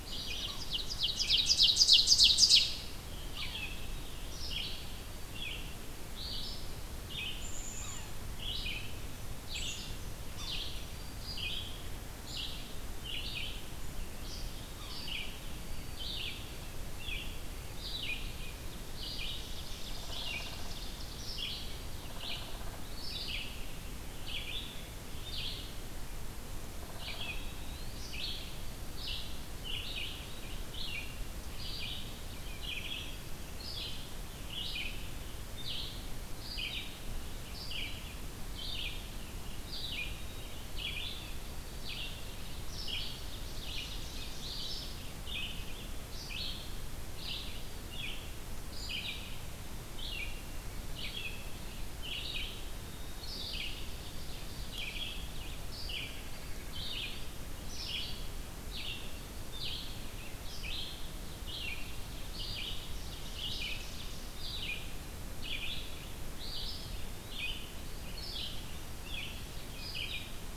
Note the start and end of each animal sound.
0.0s-0.8s: Black-throated Green Warbler (Setophaga virens)
0.2s-2.9s: Ovenbird (Seiurus aurocapilla)
1.0s-59.9s: Red-eyed Vireo (Vireo olivaceus)
7.3s-8.2s: Black-capped Chickadee (Poecile atricapillus)
7.7s-8.1s: Yellow-bellied Sapsucker (Sphyrapicus varius)
9.5s-10.0s: Black-capped Chickadee (Poecile atricapillus)
10.3s-11.8s: Yellow-bellied Sapsucker (Sphyrapicus varius)
15.5s-18.4s: White-throated Sparrow (Zonotrichia albicollis)
19.0s-21.4s: Ovenbird (Seiurus aurocapilla)
27.1s-29.4s: White-throated Sparrow (Zonotrichia albicollis)
39.7s-42.4s: White-throated Sparrow (Zonotrichia albicollis)
42.8s-45.2s: Ovenbird (Seiurus aurocapilla)
52.7s-56.6s: White-throated Sparrow (Zonotrichia albicollis)
60.3s-70.3s: Red-eyed Vireo (Vireo olivaceus)
62.5s-64.4s: Ovenbird (Seiurus aurocapilla)
66.3s-67.6s: Eastern Wood-Pewee (Contopus virens)

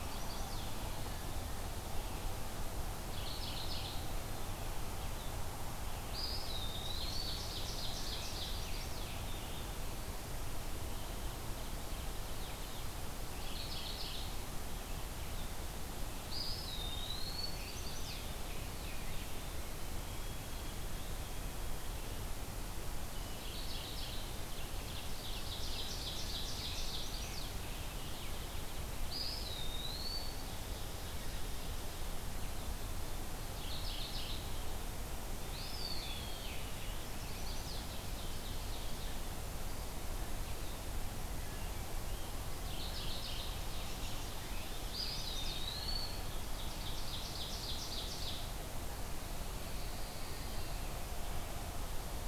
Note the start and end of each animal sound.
0.0s-0.5s: Scarlet Tanager (Piranga olivacea)
0.0s-0.8s: Chestnut-sided Warbler (Setophaga pensylvanica)
2.9s-4.2s: Mourning Warbler (Geothlypis philadelphia)
5.9s-7.3s: Eastern Wood-Pewee (Contopus virens)
6.6s-8.4s: Ovenbird (Seiurus aurocapilla)
8.2s-9.3s: Chestnut-sided Warbler (Setophaga pensylvanica)
10.7s-13.0s: Ovenbird (Seiurus aurocapilla)
13.3s-14.3s: Mourning Warbler (Geothlypis philadelphia)
16.1s-17.5s: Eastern Wood-Pewee (Contopus virens)
17.2s-19.5s: Scarlet Tanager (Piranga olivacea)
17.2s-18.4s: Chestnut-sided Warbler (Setophaga pensylvanica)
19.6s-22.8s: White-throated Sparrow (Zonotrichia albicollis)
23.1s-24.3s: Mourning Warbler (Geothlypis philadelphia)
24.8s-26.9s: Ovenbird (Seiurus aurocapilla)
26.8s-27.6s: Chestnut-sided Warbler (Setophaga pensylvanica)
27.2s-29.1s: Ovenbird (Seiurus aurocapilla)
29.0s-30.4s: Eastern Wood-Pewee (Contopus virens)
30.3s-32.3s: Ovenbird (Seiurus aurocapilla)
33.4s-34.5s: Mourning Warbler (Geothlypis philadelphia)
35.3s-36.4s: Eastern Wood-Pewee (Contopus virens)
35.8s-37.4s: Scarlet Tanager (Piranga olivacea)
37.0s-37.9s: Chestnut-sided Warbler (Setophaga pensylvanica)
37.4s-39.3s: Ovenbird (Seiurus aurocapilla)
42.6s-43.6s: Mourning Warbler (Geothlypis philadelphia)
44.6s-45.6s: Chestnut-sided Warbler (Setophaga pensylvanica)
44.7s-46.4s: Eastern Wood-Pewee (Contopus virens)
46.1s-48.6s: Ovenbird (Seiurus aurocapilla)
49.1s-50.9s: Pine Warbler (Setophaga pinus)

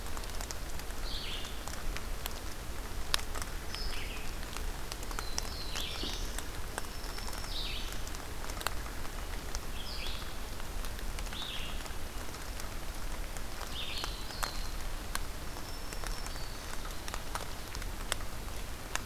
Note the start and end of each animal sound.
0.0s-7.9s: Red-eyed Vireo (Vireo olivaceus)
4.9s-6.4s: Black-throated Blue Warbler (Setophaga caerulescens)
6.6s-8.1s: Black-throated Green Warbler (Setophaga virens)
9.6s-14.2s: Red-eyed Vireo (Vireo olivaceus)
13.5s-14.8s: Black-throated Blue Warbler (Setophaga caerulescens)
15.3s-16.9s: Black-throated Green Warbler (Setophaga virens)

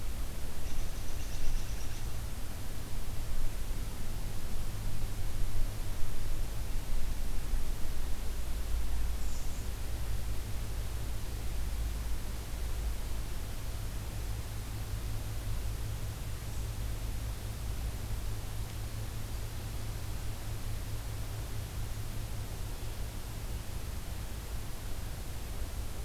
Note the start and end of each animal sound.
0.4s-2.2s: American Robin (Turdus migratorius)
9.0s-9.9s: American Robin (Turdus migratorius)
16.2s-16.8s: American Robin (Turdus migratorius)

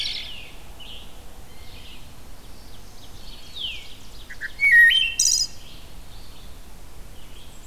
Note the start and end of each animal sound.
0.0s-0.5s: Wood Thrush (Hylocichla mustelina)
0.0s-1.1s: Scarlet Tanager (Piranga olivacea)
0.0s-7.7s: Red-eyed Vireo (Vireo olivaceus)
1.4s-2.2s: Blue Jay (Cyanocitta cristata)
2.4s-3.9s: Black-throated Green Warbler (Setophaga virens)
2.4s-5.0s: Ovenbird (Seiurus aurocapilla)
3.4s-4.1s: Veery (Catharus fuscescens)
4.2s-5.6s: Wood Thrush (Hylocichla mustelina)
7.2s-7.7s: Black-and-white Warbler (Mniotilta varia)

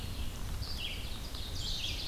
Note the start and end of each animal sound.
0.0s-2.1s: Red-eyed Vireo (Vireo olivaceus)
0.2s-2.1s: Ovenbird (Seiurus aurocapilla)

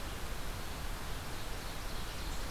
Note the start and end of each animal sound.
0.9s-2.5s: Ovenbird (Seiurus aurocapilla)

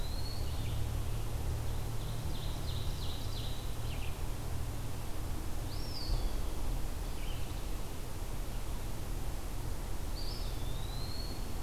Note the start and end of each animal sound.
0.0s-0.5s: Eastern Wood-Pewee (Contopus virens)
0.0s-7.8s: Red-eyed Vireo (Vireo olivaceus)
1.3s-4.2s: Ovenbird (Seiurus aurocapilla)
5.4s-6.4s: Eastern Wood-Pewee (Contopus virens)
9.9s-11.5s: Eastern Wood-Pewee (Contopus virens)

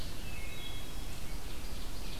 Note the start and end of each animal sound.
0.2s-1.0s: Wood Thrush (Hylocichla mustelina)
1.0s-2.2s: American Robin (Turdus migratorius)
1.4s-2.2s: Ovenbird (Seiurus aurocapilla)

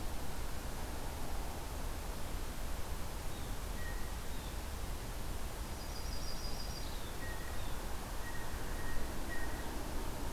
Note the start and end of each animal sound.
3.3s-4.5s: Blue Jay (Cyanocitta cristata)
5.6s-7.1s: Yellow-rumped Warbler (Setophaga coronata)
7.1s-9.7s: Blue Jay (Cyanocitta cristata)

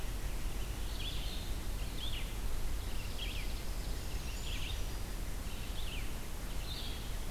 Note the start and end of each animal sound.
0.0s-2.3s: Blue-headed Vireo (Vireo solitarius)
0.0s-7.3s: Red-eyed Vireo (Vireo olivaceus)
0.0s-7.3s: unidentified call
3.6s-5.4s: Brown Creeper (Certhia americana)

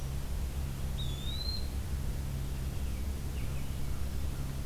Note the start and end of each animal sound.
0.9s-1.9s: Eastern Wood-Pewee (Contopus virens)

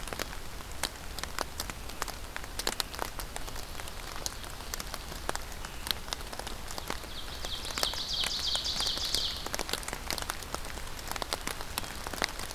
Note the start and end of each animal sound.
6.8s-9.5s: Ovenbird (Seiurus aurocapilla)

